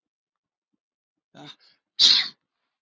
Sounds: Sneeze